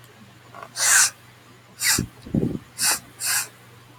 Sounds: Sniff